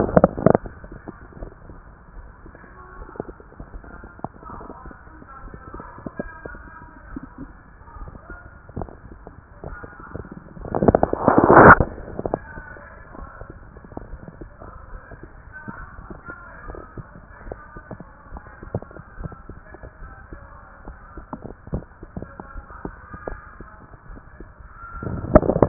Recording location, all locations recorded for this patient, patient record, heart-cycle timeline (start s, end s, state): tricuspid valve (TV)
aortic valve (AV)+pulmonary valve (PV)+tricuspid valve (TV)+mitral valve (MV)
#Age: nan
#Sex: Female
#Height: nan
#Weight: nan
#Pregnancy status: True
#Murmur: Absent
#Murmur locations: nan
#Most audible location: nan
#Systolic murmur timing: nan
#Systolic murmur shape: nan
#Systolic murmur grading: nan
#Systolic murmur pitch: nan
#Systolic murmur quality: nan
#Diastolic murmur timing: nan
#Diastolic murmur shape: nan
#Diastolic murmur grading: nan
#Diastolic murmur pitch: nan
#Diastolic murmur quality: nan
#Outcome: Normal
#Campaign: 2015 screening campaign
0.00	16.36	unannotated
16.36	16.66	diastole
16.66	16.78	S1
16.78	16.94	systole
16.94	17.08	S2
17.08	17.46	diastole
17.46	17.58	S1
17.58	17.73	systole
17.73	17.83	S2
17.83	18.32	diastole
18.32	18.44	S1
18.44	18.66	systole
18.66	18.82	S2
18.82	19.19	diastole
19.19	19.32	S1
19.32	19.48	systole
19.48	19.62	S2
19.62	20.00	diastole
20.00	20.12	S1
20.12	20.30	systole
20.30	20.40	S2
20.40	20.85	diastole
20.85	20.98	S1
20.98	21.15	systole
21.15	21.26	S2
21.26	21.72	diastole
21.72	21.84	S1
21.84	22.01	systole
22.01	22.12	S2
22.12	22.56	diastole
22.56	22.66	S1
22.66	22.82	systole
22.82	22.90	S2
22.90	23.28	diastole
23.28	23.40	S1
23.40	23.58	systole
23.58	23.68	S2
23.68	24.10	diastole
24.10	24.22	S1
24.22	24.40	systole
24.40	24.50	S2
24.50	24.94	diastole
24.94	25.68	unannotated